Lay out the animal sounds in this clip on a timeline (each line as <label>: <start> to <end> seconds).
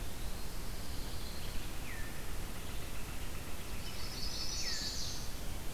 Red-eyed Vireo (Vireo olivaceus): 0.0 to 2.4 seconds
Pine Warbler (Setophaga pinus): 0.3 to 1.6 seconds
Pileated Woodpecker (Dryocopus pileatus): 2.5 to 4.6 seconds
Chestnut-sided Warbler (Setophaga pensylvanica): 3.7 to 5.3 seconds